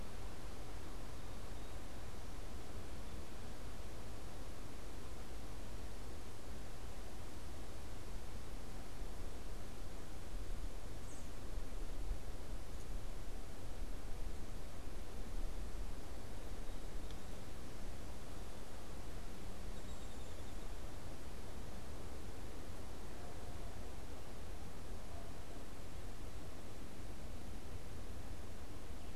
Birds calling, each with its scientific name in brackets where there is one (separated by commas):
unidentified bird, American Robin (Turdus migratorius)